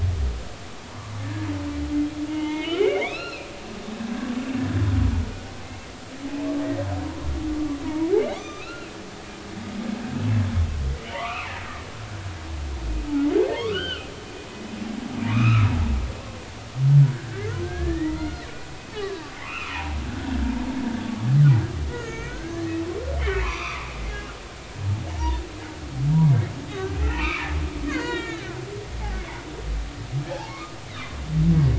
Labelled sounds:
0.8	1.1	humpback whale, 0.86 to 1.2 kHz
2.3	3.5	humpback whale, 0.86 to 5.6 kHz
7.8	9.0	humpback whale, 0.86 to 6.2 kHz
10.2	10.4	humpback whale, 2.5 to 2.7 kHz
11.1	11.9	humpback whale, 0.86 to 2.8 kHz
13.6	14.1	humpback whale, 1.0 to 3.2 kHz
15.2	15.7	humpback whale, 1.1 to 2.9 kHz
17.1	18.4	humpback whale, 1.3 to 2.2 kHz
19.0	20.3	humpback whale, 0.80 to 3.0 kHz
21.9	22.6	humpback whale, 1.3 to 2.5 kHz
23.2	23.9	humpback whale, 0.90 to 3.7 kHz
25.1	25.4	humpback whale, 0.86 to 2.0 kHz
27.0	27.5	humpback whale, 0.90 to 2.8 kHz
27.9	28.6	humpback whale, 1.3 to 6.8 kHz
29.2	29.4	humpback whale, 1.9 to 2.3 kHz
30.5	31.2	humpback whale, 0.99 to 4.0 kHz

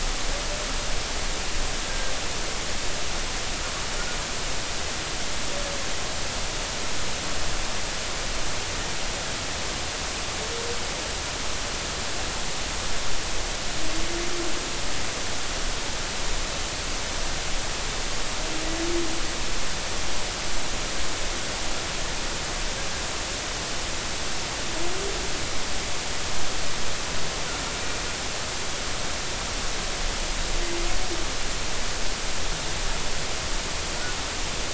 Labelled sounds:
1.9	2.1	humpback whale, 1.5 to 1.6 kHz

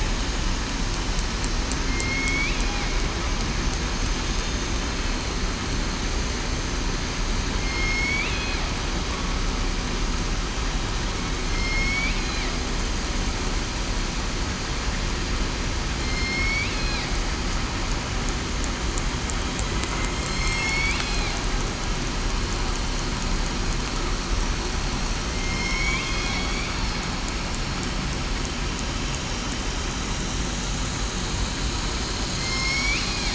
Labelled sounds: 1.8	2.6	killer whale, southern resident, 2.1 to 2.8 kHz
7.6	8.3	killer whale, southern resident, 2.1 to 5.5 kHz
11.4	12.0	killer whale, southern resident, 5.2 to 5.7 kHz
16.0	16.6	killer whale, southern resident, 4.1 to 5.6 kHz
20.3	20.9	killer whale, southern resident, 4.1 to 5.6 kHz
25.3	26.5	killer whale, southern resident, 2.0 to 5.7 kHz
32.4	32.9	killer whale, southern resident, 5.2 to 5.7 kHz

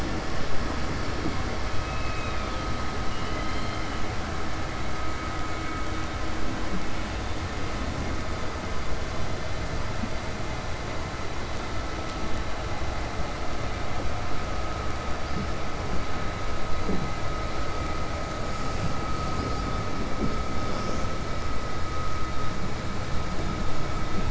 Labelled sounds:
3.0	3.9	killer whale, 1.9 to 4.7 kHz

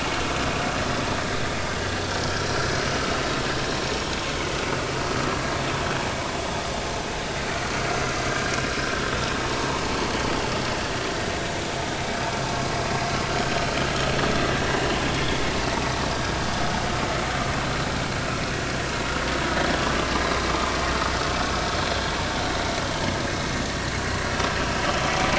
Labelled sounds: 2.4	2.6	vessel noise, 5.6 to 5.7 kHz
15.1	15.4	vessel noise, 3.2 to 3.6 kHz

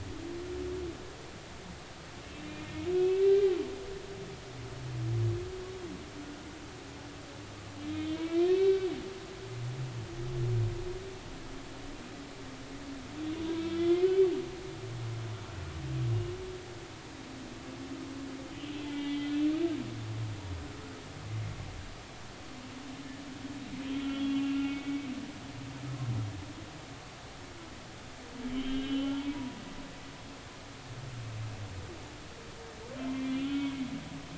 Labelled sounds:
2.9	3.6	humpback whale, 1.8 to 2.7 kHz
8.1	8.9	humpback whale, 1.5 to 2.8 kHz
13.5	14.1	humpback whale, 1.3 to 3.5 kHz
18.9	19.3	humpback whale, 2.0 to 2.3 kHz
24.0	25.1	humpback whale, 1.3 to 3.4 kHz
28.5	29.6	humpback whale, 0.80 to 3.3 kHz
33.0	33.7	humpback whale, 1.3 to 3.4 kHz

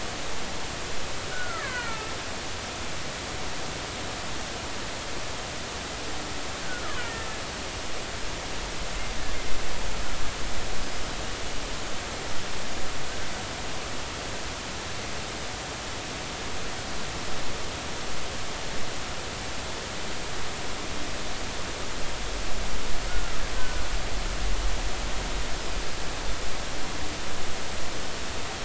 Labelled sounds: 1.3	2.1	killer whale, Bigg's (transient), 0.93 to 2.3 kHz
23.1	23.9	killer whale, Bigg's (transient), 1.3 to 1.6 kHz

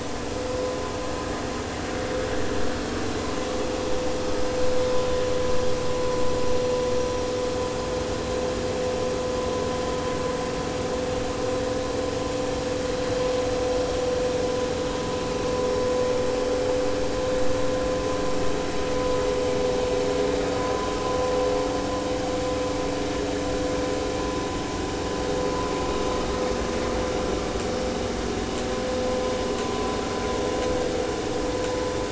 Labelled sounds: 5.5	5.8	vessel noise, 4.6 to 4.8 kHz

